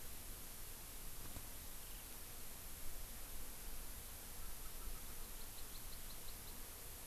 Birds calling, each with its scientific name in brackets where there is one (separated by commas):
Hawaii Amakihi (Chlorodrepanis virens), Erckel's Francolin (Pternistis erckelii)